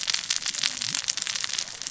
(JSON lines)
{"label": "biophony, cascading saw", "recorder": "SoundTrap 600 or HydroMoth"}